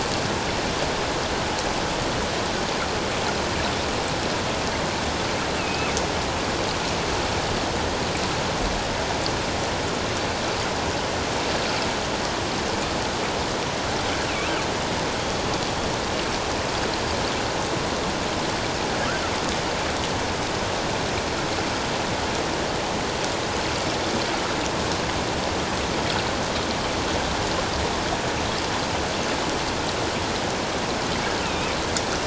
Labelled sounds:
5.6	6.0	killer whale, northern resident, 2.1 to 2.8 kHz
14.2	14.5	killer whale, northern resident, 2.2 to 2.8 kHz
31.4	31.7	killer whale, northern resident, 2.3 to 2.8 kHz

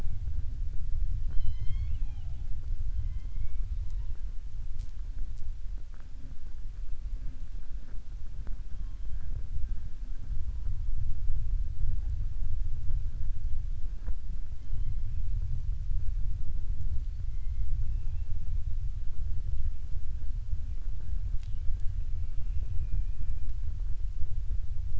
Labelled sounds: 3.0	3.6	killer whale, southern resident, 1.1 to 3.2 kHz
17.8	18.3	killer whale, southern resident, 1.8 to 3.6 kHz
22.7	23.5	killer whale, southern resident, 1.5 to 2.8 kHz

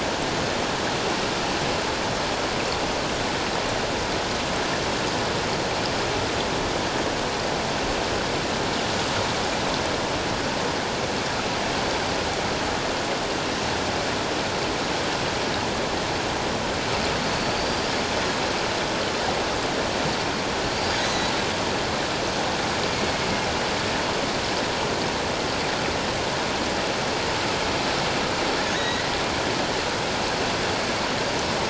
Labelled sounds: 17.3	17.9	killer whale, offshore, 4.4 to 4.8 kHz
20.7	21.3	killer whale, offshore, 3.7 to 6.8 kHz
22.9	23.2	killer whale, offshore, 4.3 to 4.4 kHz
28.7	29.0	killer whale, offshore, 1.7 to 4.0 kHz

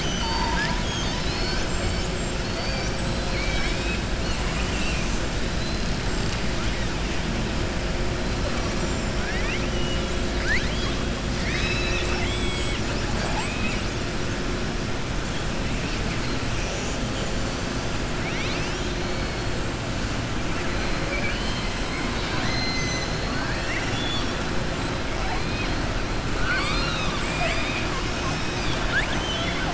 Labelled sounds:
3.1	5.1	killer whale, southern resident, 1.1 to 6.1 kHz
5.5	5.9	killer whale, southern resident, 4.0 to 5.0 kHz
9.1	9.6	killer whale, southern resident, 0.80 to 3.5 kHz
10.3	11.0	killer whale, southern resident, 1.4 to 5.0 kHz
11.3	13.8	killer whale, southern resident, 0.63 to 8.0 kHz
21.0	24.4	killer whale, southern resident, 1.0 to 7.3 kHz
26.3	29.7	killer whale, southern resident, 0.71 to 7.9 kHz

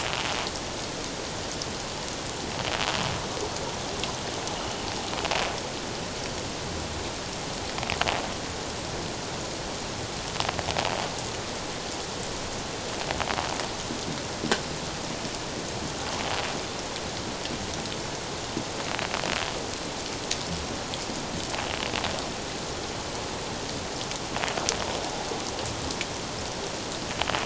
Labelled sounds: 4.6	4.9	water noise, 2.8 to 3.0 kHz

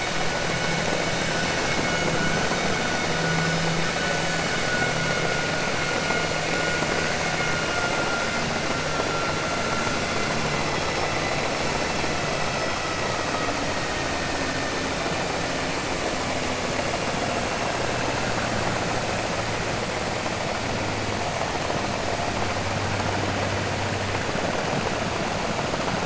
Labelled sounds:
12.3	13.1	vessel noise, 1.0 to 2.7 kHz

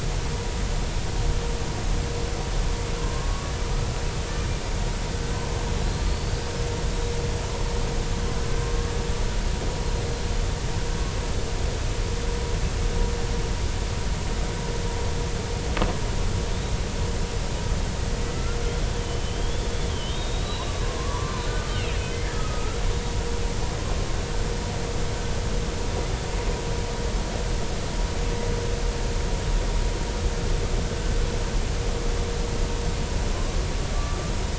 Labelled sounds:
4.0	4.5	killer whale, Bigg's (transient), 0.99 to 1.2 kHz
6.0	6.4	killer whale, Bigg's (transient), 4.3 to 4.8 kHz
18.2	18.5	killer whale, Bigg's (transient), 1.9 to 2.1 kHz
19.0	21.5	killer whale, Bigg's (transient), 0.93 to 4.0 kHz
22.3	22.8	killer whale, Bigg's (transient), 1.2 to 1.4 kHz
33.3	33.6	killer whale, Bigg's (transient), 0.99 to 1.2 kHz
33.9	34.2	killer whale, Bigg's (transient), 1.1 to 1.3 kHz

